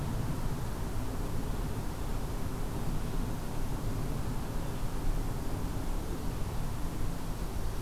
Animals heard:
forest ambience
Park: Acadia National Park